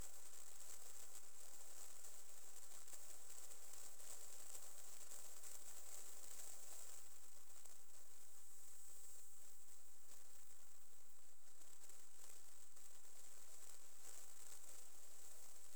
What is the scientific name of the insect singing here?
Leptophyes punctatissima